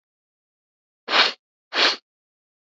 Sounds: Sniff